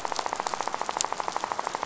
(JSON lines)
{"label": "biophony, rattle", "recorder": "SoundTrap 500"}